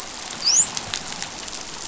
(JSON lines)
{"label": "biophony, dolphin", "recorder": "SoundTrap 500"}